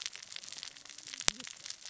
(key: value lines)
label: biophony, cascading saw
recorder: SoundTrap 600 or HydroMoth